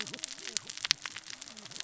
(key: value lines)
label: biophony, cascading saw
recorder: SoundTrap 600 or HydroMoth